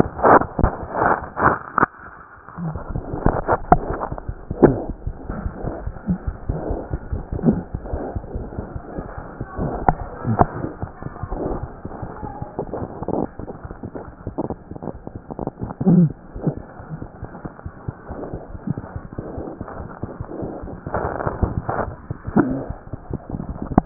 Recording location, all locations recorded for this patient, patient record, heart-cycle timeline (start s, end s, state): aortic valve (AV)
aortic valve (AV)+mitral valve (MV)
#Age: Infant
#Sex: Male
#Height: 60.0 cm
#Weight: 8.3 kg
#Pregnancy status: False
#Murmur: Absent
#Murmur locations: nan
#Most audible location: nan
#Systolic murmur timing: nan
#Systolic murmur shape: nan
#Systolic murmur grading: nan
#Systolic murmur pitch: nan
#Systolic murmur quality: nan
#Diastolic murmur timing: nan
#Diastolic murmur shape: nan
#Diastolic murmur grading: nan
#Diastolic murmur pitch: nan
#Diastolic murmur quality: nan
#Outcome: Normal
#Campaign: 2015 screening campaign
0.00	7.71	unannotated
7.71	7.78	S1
7.78	7.91	systole
7.91	7.98	S2
7.98	8.14	diastole
8.14	8.20	S1
8.20	8.33	systole
8.33	8.39	S2
8.39	8.56	diastole
8.56	8.63	S1
8.63	8.73	systole
8.73	8.79	S2
8.79	8.94	diastole
8.94	9.04	S1
9.04	9.15	systole
9.15	9.22	S2
9.22	9.38	diastole
9.38	9.47	S1
9.47	11.83	unannotated
11.83	11.89	S1
11.89	12.01	systole
12.01	12.07	S2
12.07	12.22	diastole
12.22	12.29	S1
12.29	12.40	systole
12.40	12.45	S2
12.45	23.86	unannotated